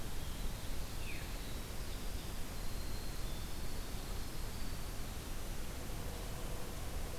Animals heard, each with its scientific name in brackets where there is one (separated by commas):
Winter Wren (Troglodytes hiemalis)